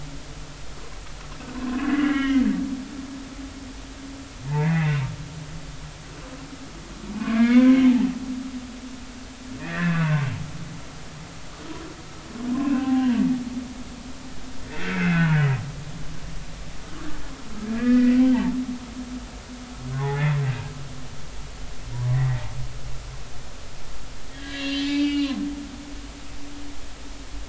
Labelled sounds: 1.7	2.4	humpback whale, 0.99 to 3.3 kHz
4.4	5.1	humpback whale, 0.83 to 2.8 kHz
7.1	7.8	humpback whale, 0.93 to 2.5 kHz
9.6	10.3	humpback whale, 0.99 to 2.8 kHz
12.5	13.2	humpback whale, 0.80 to 2.9 kHz
14.9	16.4	humpback whale, 1.4 to 2.7 kHz
17.7	18.5	humpback whale, 0.80 to 2.6 kHz
19.9	20.5	humpback whale, 0.80 to 2.2 kHz
22.1	22.4	humpback whale, 1.8 to 2.0 kHz
24.3	25.3	humpback whale, 1.6 to 5.0 kHz

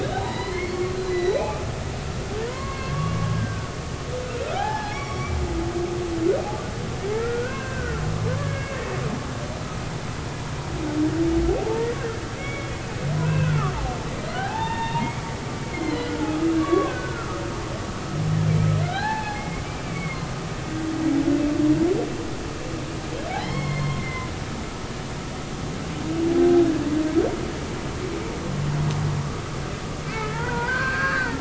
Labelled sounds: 0.0	1.4	humpback whale, 0.80 to 4.5 kHz
2.5	3.7	humpback whale, 0.96 to 2.2 kHz
4.5	5.4	humpback whale, 0.80 to 5.9 kHz
7.1	8.0	humpback whale, 0.96 to 2.8 kHz
8.4	8.8	humpback whale, 1.5 to 2.3 kHz
11.5	12.7	humpback whale, 0.80 to 3.4 kHz
13.2	13.7	humpback whale, 1.1 to 2.8 kHz
14.4	16.1	humpback whale, 0.80 to 4.3 kHz
16.6	17.4	humpback whale, 1.0 to 3.5 kHz
18.8	20.2	humpback whale, 0.80 to 4.4 kHz
23.4	24.3	humpback whale, 1.9 to 5.5 kHz
30.0	31.3	humpback whale, 0.86 to 2.5 kHz

